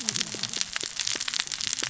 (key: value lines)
label: biophony, cascading saw
recorder: SoundTrap 600 or HydroMoth